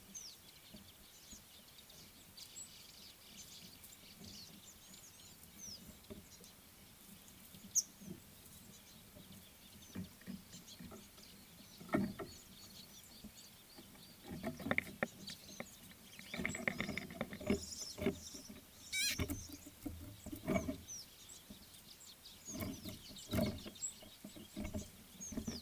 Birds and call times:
Gray-backed Camaroptera (Camaroptera brevicaudata): 0:19.1

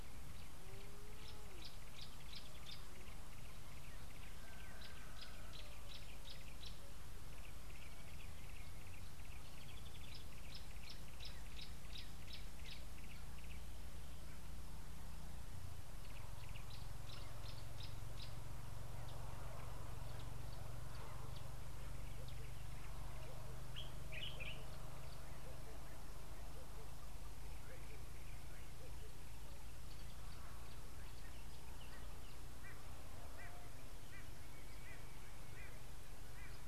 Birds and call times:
Gray-backed Camaroptera (Camaroptera brevicaudata): 0:02.0, 0:11.5, 0:17.5
Yellow-breasted Apalis (Apalis flavida): 0:03.7, 0:13.0
Southern Fiscal (Lanius collaris): 0:07.9
Common Bulbul (Pycnonotus barbatus): 0:24.3
White-bellied Go-away-bird (Corythaixoides leucogaster): 0:34.1

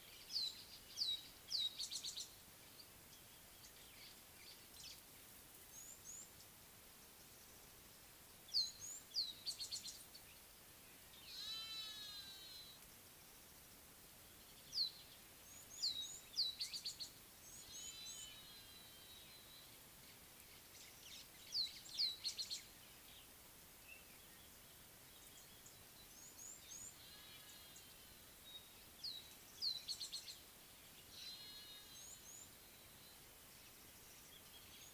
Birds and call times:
Rattling Cisticola (Cisticola chiniana): 0:01.0, 0:09.3, 0:16.4, 0:22.0, 0:29.6
Red-cheeked Cordonbleu (Uraeginthus bengalus): 0:05.8, 0:15.7, 0:17.8, 0:26.4, 0:32.1

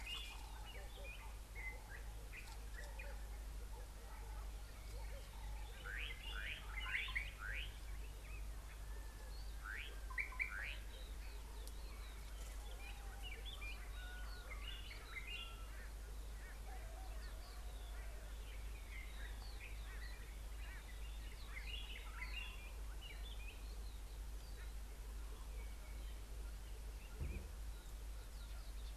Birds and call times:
Slate-colored Boubou (Laniarius funebris): 0:06.5, 0:10.3
Pale White-eye (Zosterops flavilateralis): 0:14.1
White-browed Robin-Chat (Cossypha heuglini): 0:14.7

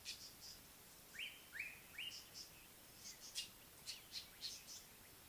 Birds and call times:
Northern Puffback (Dryoscopus gambensis): 0:00.1, 0:03.4
Slate-colored Boubou (Laniarius funebris): 0:01.6

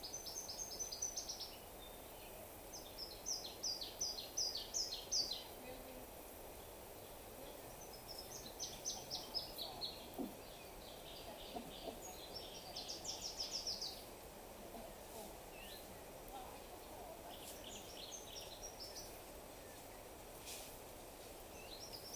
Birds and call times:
Waller's Starling (Onychognathus walleri): 0:01.7
Brown Woodland-Warbler (Phylloscopus umbrovirens): 0:13.1

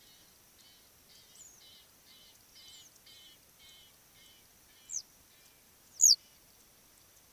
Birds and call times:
Egyptian Goose (Alopochen aegyptiaca): 0:01.8
Western Yellow Wagtail (Motacilla flava): 0:06.1

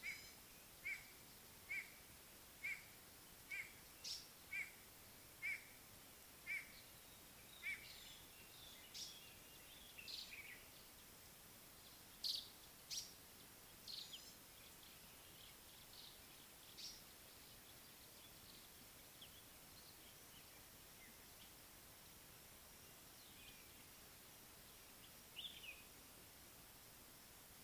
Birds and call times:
White-bellied Go-away-bird (Corythaixoides leucogaster): 0:03.4
African Paradise-Flycatcher (Terpsiphone viridis): 0:04.0, 0:08.9, 0:12.8
Common Bulbul (Pycnonotus barbatus): 0:25.4

